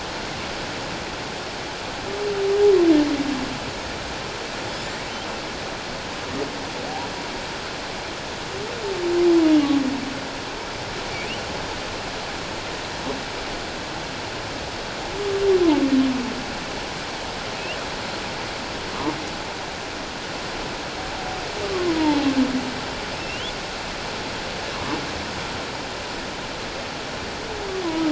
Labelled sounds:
22.0	22.3	humpback whale, 0.78 to 0.97 kHz
23.2	23.5	humpback whale, 2.6 to 3.5 kHz
24.7	25.0	humpback whale, 0.84 to 1.2 kHz

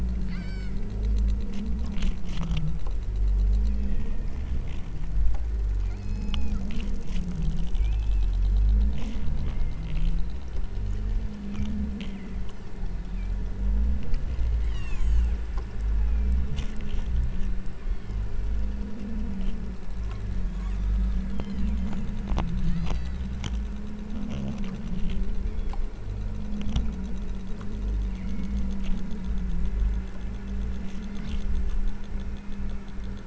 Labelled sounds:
0.2	0.9	killer whale, southern Alaska resident, 0.94 to 8.0 kHz
3.6	4.6	killer whale, southern Alaska resident, 1.6 to 3.4 kHz
5.9	6.8	killer whale, southern Alaska resident, 0.50 to 7.0 kHz
7.8	8.7	killer whale, southern Alaska resident, 2.0 to 8.0 kHz
9.4	10.0	killer whale, southern Alaska resident, 1.8 to 2.4 kHz
12.0	12.5	killer whale, southern Alaska resident, 1.7 to 2.3 kHz
14.6	15.4	killer whale, southern Alaska resident, 0.82 to 8.0 kHz
16.0	16.6	killer whale, southern Alaska resident, 1.8 to 2.8 kHz
17.8	18.7	killer whale, southern Alaska resident, 2.0 to 3.5 kHz
21.3	22.1	killer whale, southern Alaska resident, 1.7 to 5.6 kHz
22.6	23.3	killer whale, southern Alaska resident, 1.8 to 5.0 kHz
25.5	26.0	killer whale, southern Alaska resident, 1.9 to 5.8 kHz
28.2	28.6	killer whale, southern Alaska resident, 1.7 to 3.1 kHz
31.0	31.5	killer whale, southern Alaska resident, 1.2 to 2.3 kHz

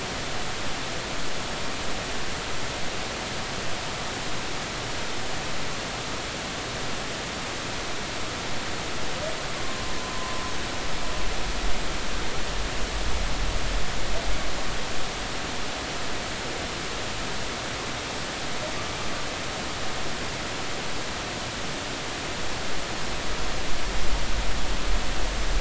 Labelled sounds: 9.6	9.9	humpback whale, 1.0 to 1.1 kHz

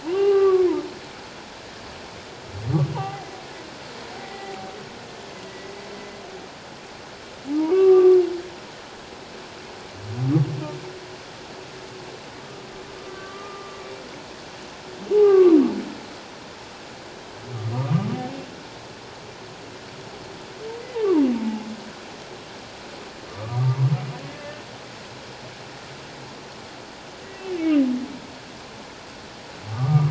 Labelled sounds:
0.0	0.7	humpback whale, 0.78 to 3.2 kHz
2.9	3.2	humpback whale, 0.78 to 1.0 kHz
4.2	4.7	humpback whale, 0.78 to 2.1 kHz
5.5	5.7	humpback whale, 1.9 to 2.0 kHz
7.7	8.2	humpback whale, 1.1 to 1.2 kHz
13.0	13.8	humpback whale, 1.1 to 1.3 kHz
15.1	15.6	humpback whale, 0.78 to 1.3 kHz
17.7	18.1	humpback whale, 1.1 to 1.3 kHz
21.4	21.7	humpback whale, 0.78 to 0.94 kHz
23.3	23.8	humpback whale, 1.1 to 1.3 kHz
29.7	30.1	humpback whale, 1.1 to 1.3 kHz

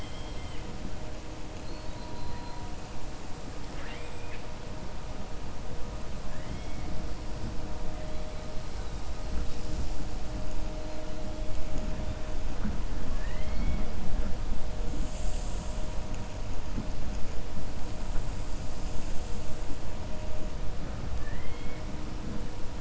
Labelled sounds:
3.6	4.5	killer whale, 0.72 to 4.0 kHz
6.2	6.9	killer whale, 1.1 to 3.4 kHz
21.1	21.8	killer whale, 1.0 to 3.3 kHz

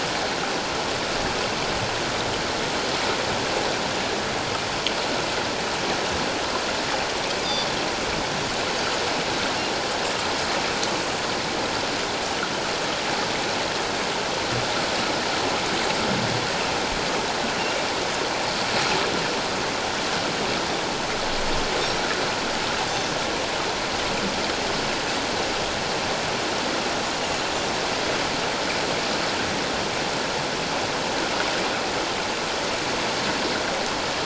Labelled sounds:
7.4	7.7	Pacific white-sided dolphin, 4.7 to 5.0 kHz
22.8	23.1	Pacific white-sided dolphin, 3.5 to 3.6 kHz

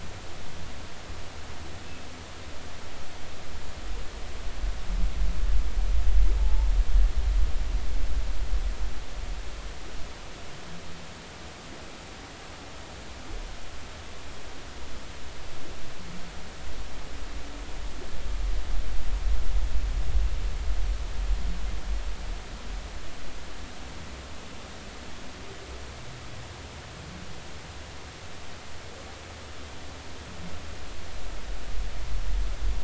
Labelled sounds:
6.4	6.7	humpback whale, 0.80 to 0.96 kHz

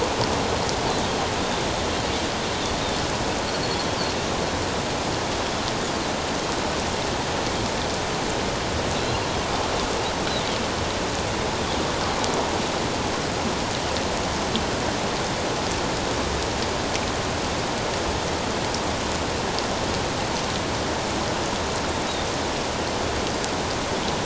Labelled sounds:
8.9	9.2	Pacific white-sided dolphin, 3.8 to 4.2 kHz

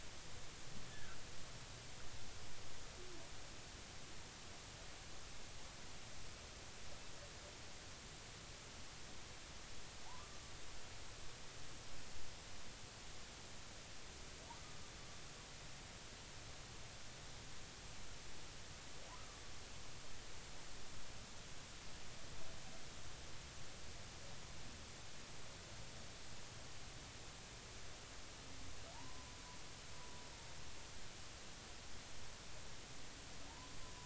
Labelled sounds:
0.9	1.2	humpback whale, 1.3 to 1.8 kHz
28.9	29.4	humpback whale, 0.80 to 1.1 kHz
33.5	33.7	humpback whale, 0.86 to 1.1 kHz

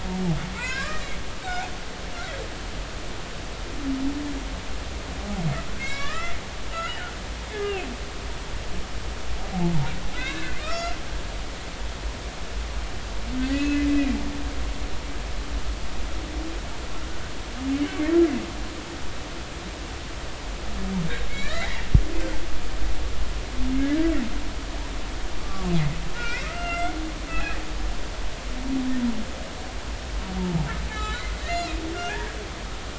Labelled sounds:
0.6	1.1	humpback whale, 0.86 to 2.8 kHz
1.4	1.7	humpback whale, 1.4 to 1.6 kHz
5.7	7.1	humpback whale, 1.1 to 7.4 kHz
7.5	7.8	humpback whale, 1.5 to 2.2 kHz
10.1	11.0	humpback whale, 1.2 to 5.6 kHz
13.5	14.2	humpback whale, 2.3 to 2.7 kHz
21.3	21.9	humpback whale, 1.6 to 2.5 kHz
23.8	24.0	humpback whale, 1.6 to 1.8 kHz
25.4	25.7	humpback whale, 1.1 to 1.2 kHz
26.1	26.9	humpback whale, 1.2 to 5.6 kHz
27.3	27.6	humpback whale, 2.4 to 2.7 kHz
30.9	31.8	humpback whale, 0.83 to 4.0 kHz
32.1	32.4	humpback whale, 1.5 to 1.9 kHz

